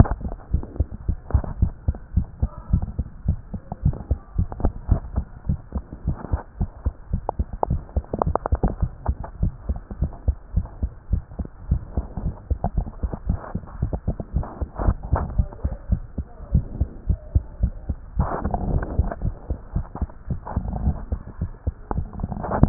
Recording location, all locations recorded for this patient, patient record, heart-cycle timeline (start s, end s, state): tricuspid valve (TV)
aortic valve (AV)+pulmonary valve (PV)+tricuspid valve (TV)+tricuspid valve (TV)+mitral valve (MV)
#Age: Child
#Sex: Male
#Height: 107.0 cm
#Weight: 18.2 kg
#Pregnancy status: False
#Murmur: Absent
#Murmur locations: nan
#Most audible location: nan
#Systolic murmur timing: nan
#Systolic murmur shape: nan
#Systolic murmur grading: nan
#Systolic murmur pitch: nan
#Systolic murmur quality: nan
#Diastolic murmur timing: nan
#Diastolic murmur shape: nan
#Diastolic murmur grading: nan
#Diastolic murmur pitch: nan
#Diastolic murmur quality: nan
#Outcome: Normal
#Campaign: 2014 screening campaign
0.00	0.52	unannotated
0.52	0.64	S1
0.64	0.78	systole
0.78	0.88	S2
0.88	1.08	diastole
1.08	1.18	S1
1.18	1.32	systole
1.32	1.44	S2
1.44	1.60	diastole
1.60	1.72	S1
1.72	1.86	systole
1.86	1.96	S2
1.96	2.14	diastole
2.14	2.26	S1
2.26	2.40	systole
2.40	2.50	S2
2.50	2.72	diastole
2.72	2.84	S1
2.84	2.98	systole
2.98	3.06	S2
3.06	3.26	diastole
3.26	3.38	S1
3.38	3.52	systole
3.52	3.60	S2
3.60	3.84	diastole
3.84	3.96	S1
3.96	4.10	systole
4.10	4.18	S2
4.18	4.36	diastole
4.36	4.48	S1
4.48	4.62	systole
4.62	4.72	S2
4.72	4.90	diastole
4.90	5.02	S1
5.02	5.16	systole
5.16	5.26	S2
5.26	5.48	diastole
5.48	5.58	S1
5.58	5.74	systole
5.74	5.84	S2
5.84	6.06	diastole
6.06	6.16	S1
6.16	6.32	systole
6.32	6.40	S2
6.40	6.60	diastole
6.60	6.70	S1
6.70	6.84	systole
6.84	6.94	S2
6.94	7.12	diastole
7.12	7.22	S1
7.22	7.38	systole
7.38	7.46	S2
7.46	7.68	diastole
7.68	7.82	S1
7.82	7.96	systole
7.96	8.04	S2
8.04	8.24	diastole
8.24	8.36	S1
8.36	8.52	systole
8.52	8.60	S2
8.60	8.80	diastole
8.80	8.90	S1
8.90	9.06	systole
9.06	9.16	S2
9.16	9.42	diastole
9.42	9.52	S1
9.52	9.68	systole
9.68	9.78	S2
9.78	10.00	diastole
10.00	10.12	S1
10.12	10.26	systole
10.26	10.36	S2
10.36	10.54	diastole
10.54	10.66	S1
10.66	10.82	systole
10.82	10.90	S2
10.90	11.10	diastole
11.10	11.22	S1
11.22	11.38	systole
11.38	11.46	S2
11.46	11.70	diastole
11.70	11.82	S1
11.82	11.96	systole
11.96	12.06	S2
12.06	12.24	diastole
12.24	12.34	S1
12.34	12.50	systole
12.50	12.58	S2
12.58	12.76	diastole
12.76	12.88	S1
12.88	13.02	systole
13.02	13.12	S2
13.12	13.28	diastole
13.28	13.38	S1
13.38	13.54	systole
13.54	13.62	S2
13.62	13.80	diastole
13.80	13.92	S1
13.92	14.06	systole
14.06	14.16	S2
14.16	14.34	diastole
14.34	14.46	S1
14.46	14.60	systole
14.60	14.68	S2
14.68	14.82	diastole
14.82	14.96	S1
14.96	15.12	systole
15.12	15.22	S2
15.22	15.36	diastole
15.36	15.48	S1
15.48	15.64	systole
15.64	15.74	S2
15.74	15.90	diastole
15.90	16.02	S1
16.02	16.16	systole
16.16	16.26	S2
16.26	16.52	diastole
16.52	16.66	S1
16.66	16.78	systole
16.78	16.88	S2
16.88	17.08	diastole
17.08	17.20	S1
17.20	17.34	systole
17.34	17.44	S2
17.44	17.62	diastole
17.62	17.72	S1
17.72	17.88	systole
17.88	17.98	S2
17.98	18.18	diastole
18.18	18.30	S1
18.30	18.44	systole
18.44	18.52	S2
18.52	18.68	diastole
18.68	18.84	S1
18.84	18.96	systole
18.96	19.10	S2
19.10	19.24	diastole
19.24	19.34	S1
19.34	19.48	systole
19.48	19.58	S2
19.58	19.74	diastole
19.74	19.86	S1
19.86	20.00	systole
20.00	20.10	S2
20.10	20.30	diastole
20.30	20.40	S1
20.40	20.54	systole
20.54	20.64	S2
20.64	20.82	diastole
20.82	20.96	S1
20.96	21.10	systole
21.10	21.20	S2
21.20	21.40	diastole
21.40	21.52	S1
21.52	21.66	systole
21.66	21.74	S2
21.74	21.91	diastole
21.91	22.69	unannotated